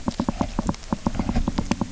{"label": "biophony, knock", "recorder": "SoundTrap 300"}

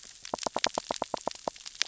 {"label": "biophony, knock", "recorder": "SoundTrap 600 or HydroMoth"}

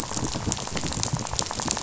{"label": "biophony, rattle", "recorder": "SoundTrap 500"}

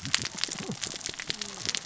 {"label": "biophony, cascading saw", "recorder": "SoundTrap 600 or HydroMoth"}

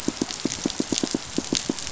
{"label": "biophony, pulse", "recorder": "SoundTrap 500"}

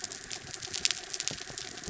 {"label": "anthrophony, mechanical", "recorder": "SoundTrap 300"}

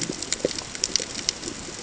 {"label": "ambient", "recorder": "HydroMoth"}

